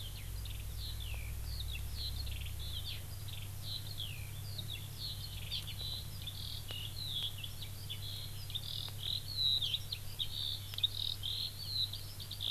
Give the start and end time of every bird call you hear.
0.0s-12.5s: Eurasian Skylark (Alauda arvensis)

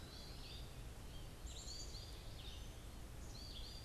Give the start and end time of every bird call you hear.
0.0s-3.8s: American Goldfinch (Spinus tristis)
0.0s-3.8s: Eastern Wood-Pewee (Contopus virens)
0.0s-3.8s: Red-eyed Vireo (Vireo olivaceus)
1.2s-3.2s: Black-capped Chickadee (Poecile atricapillus)

